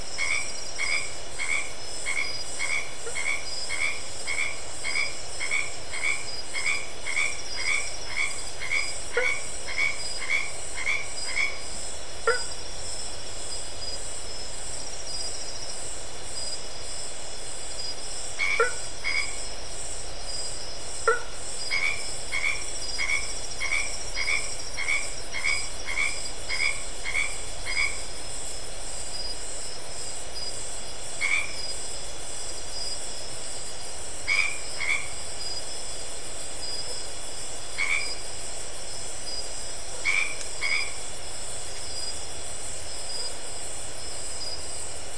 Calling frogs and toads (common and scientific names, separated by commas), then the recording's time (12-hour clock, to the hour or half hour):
white-edged tree frog (Boana albomarginata), blacksmith tree frog (Boana faber)
~8pm